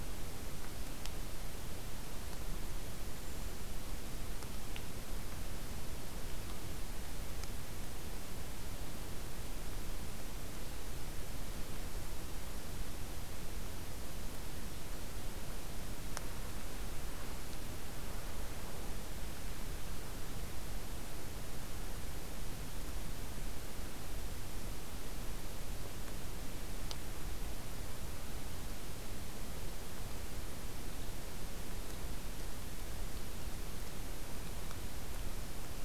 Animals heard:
forest ambience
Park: Acadia National Park